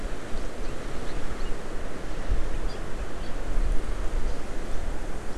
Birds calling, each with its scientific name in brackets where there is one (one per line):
Hawaii Amakihi (Chlorodrepanis virens)